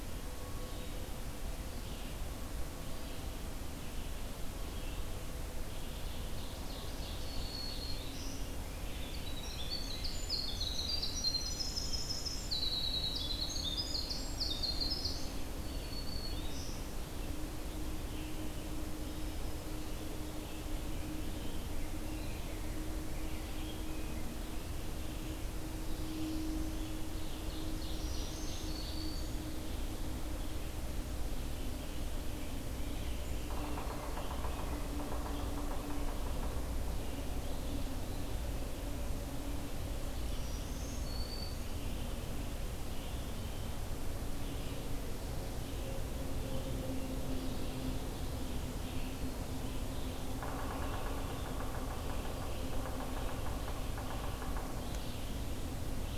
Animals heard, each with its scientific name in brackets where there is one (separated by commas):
Red-eyed Vireo (Vireo olivaceus), Ovenbird (Seiurus aurocapilla), Yellow-bellied Sapsucker (Sphyrapicus varius), Black-throated Green Warbler (Setophaga virens), Winter Wren (Troglodytes hiemalis)